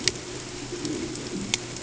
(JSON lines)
{"label": "ambient", "recorder": "HydroMoth"}